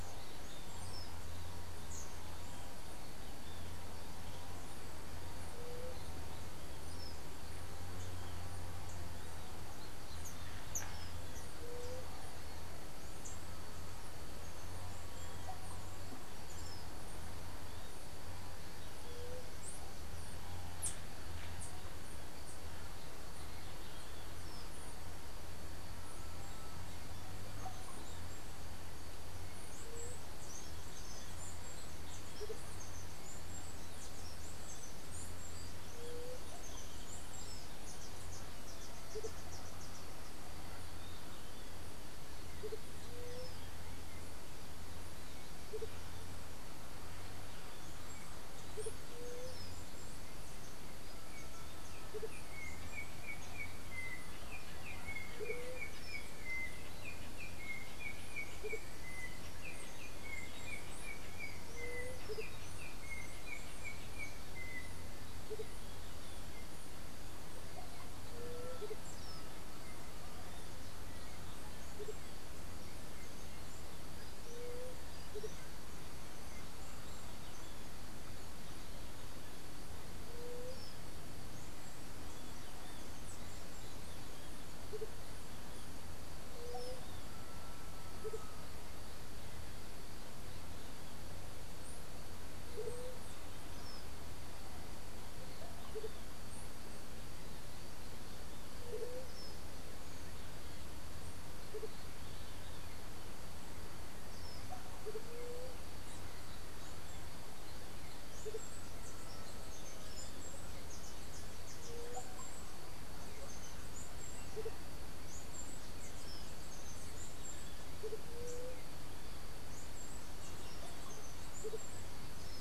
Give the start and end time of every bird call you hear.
5.6s-6.0s: White-tipped Dove (Leptotila verreauxi)
11.6s-12.2s: White-tipped Dove (Leptotila verreauxi)
15.4s-15.9s: Russet-backed Oropendola (Psarocolius angustifrons)
19.0s-19.5s: White-tipped Dove (Leptotila verreauxi)
27.6s-28.1s: Russet-backed Oropendola (Psarocolius angustifrons)
29.4s-40.7s: unidentified bird
29.8s-30.3s: White-tipped Dove (Leptotila verreauxi)
32.4s-32.6s: Andean Motmot (Momotus aequatorialis)
35.9s-36.5s: White-tipped Dove (Leptotila verreauxi)
39.1s-46.0s: Andean Motmot (Momotus aequatorialis)
43.1s-43.6s: White-tipped Dove (Leptotila verreauxi)
48.7s-58.9s: Andean Motmot (Momotus aequatorialis)
49.1s-49.7s: White-tipped Dove (Leptotila verreauxi)
51.8s-65.4s: Yellow-backed Oriole (Icterus chrysater)
55.4s-55.9s: White-tipped Dove (Leptotila verreauxi)
61.7s-62.2s: White-tipped Dove (Leptotila verreauxi)
62.3s-75.7s: Andean Motmot (Momotus aequatorialis)
68.3s-68.9s: White-tipped Dove (Leptotila verreauxi)
74.4s-75.0s: White-tipped Dove (Leptotila verreauxi)
80.3s-80.9s: White-tipped Dove (Leptotila verreauxi)
84.9s-88.5s: Andean Motmot (Momotus aequatorialis)
86.6s-87.1s: White-tipped Dove (Leptotila verreauxi)
92.8s-93.3s: White-tipped Dove (Leptotila verreauxi)
98.8s-99.3s: White-tipped Dove (Leptotila verreauxi)
105.3s-105.8s: White-tipped Dove (Leptotila verreauxi)
108.2s-122.6s: Steely-vented Hummingbird (Saucerottia saucerottei)
108.4s-122.6s: Andean Motmot (Momotus aequatorialis)
111.9s-112.4s: White-tipped Dove (Leptotila verreauxi)
118.3s-118.9s: White-tipped Dove (Leptotila verreauxi)

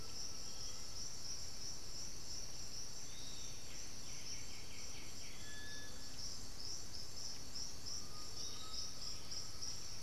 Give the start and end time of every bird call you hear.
0.0s-1.1s: unidentified bird
0.0s-1.2s: Undulated Tinamou (Crypturellus undulatus)
0.0s-10.0s: Piratic Flycatcher (Legatus leucophaius)
3.5s-5.6s: White-winged Becard (Pachyramphus polychopterus)
7.7s-9.9s: Undulated Tinamou (Crypturellus undulatus)
8.3s-10.0s: Blue-headed Parrot (Pionus menstruus)

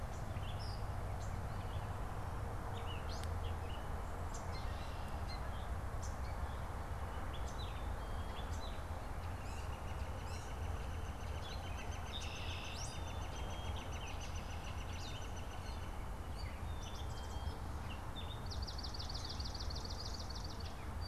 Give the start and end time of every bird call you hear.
0.0s-18.4s: Gray Catbird (Dumetella carolinensis)
4.1s-5.4s: Red-winged Blackbird (Agelaius phoeniceus)
7.4s-8.6s: Black-capped Chickadee (Poecile atricapillus)
9.1s-16.1s: Northern Flicker (Colaptes auratus)
11.7s-13.0s: Red-winged Blackbird (Agelaius phoeniceus)
16.4s-17.7s: Black-capped Chickadee (Poecile atricapillus)
18.0s-21.0s: Swamp Sparrow (Melospiza georgiana)

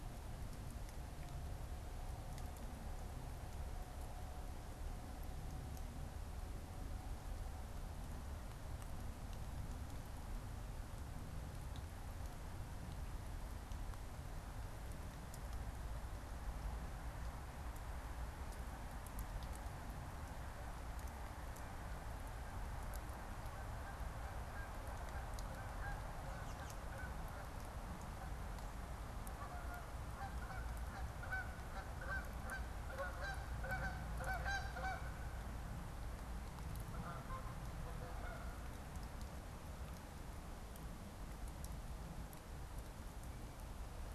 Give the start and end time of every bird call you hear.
21.7s-38.8s: Canada Goose (Branta canadensis)
26.2s-27.1s: American Robin (Turdus migratorius)

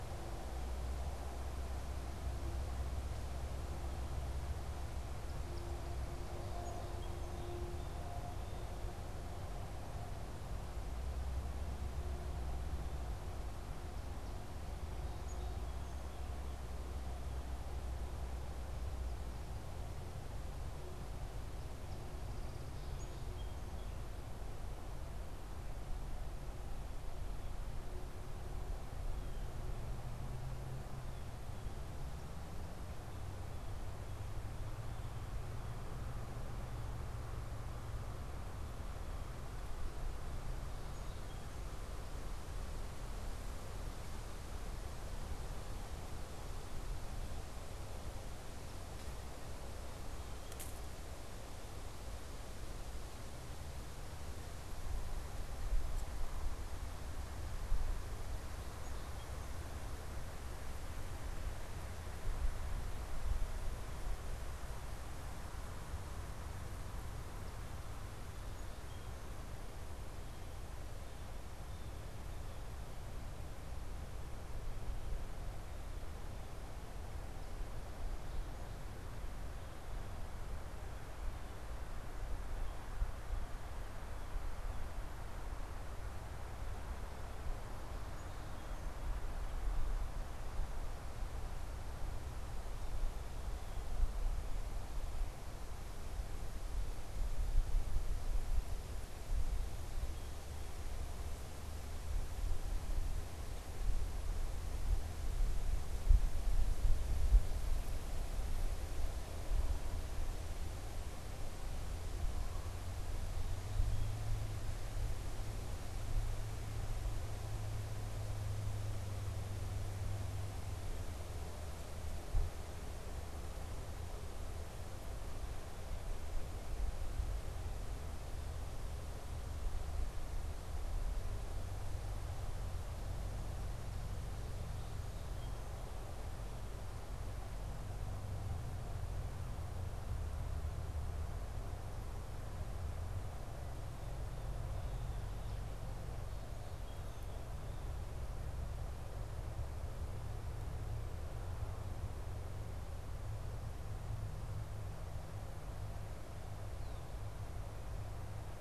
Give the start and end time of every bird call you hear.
5.2s-7.4s: Song Sparrow (Melospiza melodia)
7.6s-9.0s: Blue Jay (Cyanocitta cristata)
15.1s-16.3s: Song Sparrow (Melospiza melodia)
22.2s-24.1s: Song Sparrow (Melospiza melodia)
29.0s-31.7s: Blue Jay (Cyanocitta cristata)
40.5s-41.7s: Song Sparrow (Melospiza melodia)
58.5s-59.7s: Song Sparrow (Melospiza melodia)
68.3s-69.5s: Song Sparrow (Melospiza melodia)

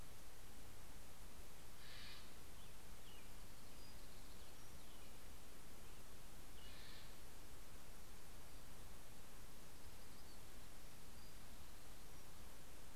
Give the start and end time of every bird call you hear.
1.5s-2.6s: Steller's Jay (Cyanocitta stelleri)
3.2s-5.5s: Townsend's Warbler (Setophaga townsendi)
6.2s-7.4s: Steller's Jay (Cyanocitta stelleri)
9.4s-12.4s: Townsend's Warbler (Setophaga townsendi)

